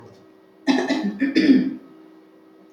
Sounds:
Throat clearing